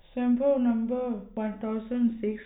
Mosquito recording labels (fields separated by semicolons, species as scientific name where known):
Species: no mosquito; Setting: cup